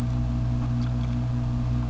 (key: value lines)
label: biophony
recorder: SoundTrap 600